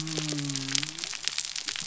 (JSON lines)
{"label": "biophony", "recorder": "SoundTrap 300"}